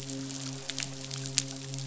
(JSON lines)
{"label": "biophony, midshipman", "recorder": "SoundTrap 500"}